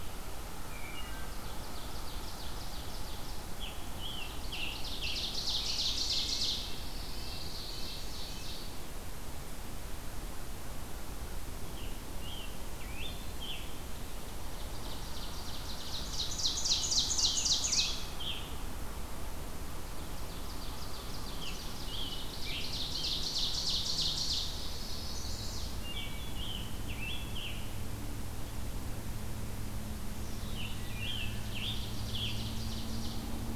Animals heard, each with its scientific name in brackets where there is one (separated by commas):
Wood Thrush (Hylocichla mustelina), Scarlet Tanager (Piranga olivacea), Red-breasted Nuthatch (Sitta canadensis), Ovenbird (Seiurus aurocapilla), American Crow (Corvus brachyrhynchos), Pine Warbler (Setophaga pinus), Chestnut-sided Warbler (Setophaga pensylvanica)